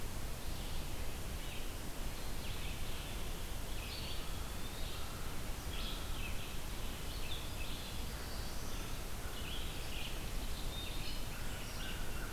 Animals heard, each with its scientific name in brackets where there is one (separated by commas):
Red-eyed Vireo (Vireo olivaceus), Song Sparrow (Melospiza melodia), Eastern Wood-Pewee (Contopus virens), American Crow (Corvus brachyrhynchos), Black-throated Blue Warbler (Setophaga caerulescens)